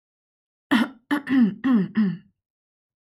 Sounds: Throat clearing